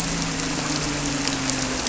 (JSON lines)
{"label": "anthrophony, boat engine", "recorder": "SoundTrap 300"}